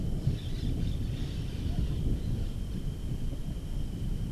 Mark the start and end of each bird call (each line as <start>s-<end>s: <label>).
0.3s-2.3s: Orange-fronted Parakeet (Eupsittula canicularis)